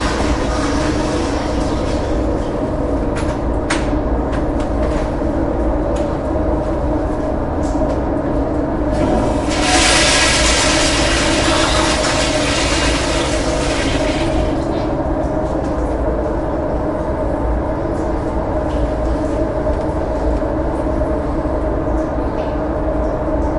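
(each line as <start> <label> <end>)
0.0 Wind blows loudly indoors. 23.6
0.0 Running water echoing in the distance. 2.4
3.0 1oud metallic thumping sounds. 5.2
8.9 Loud splashing water echoing from a toilet. 15.2
15.9 Running water echoing in the distance. 20.5
21.7 Running water echoing in the distance. 22.8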